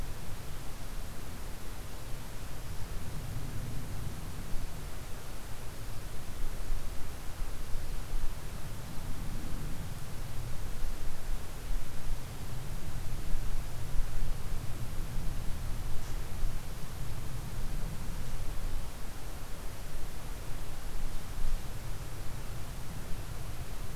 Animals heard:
forest ambience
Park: Katahdin Woods and Waters National Monument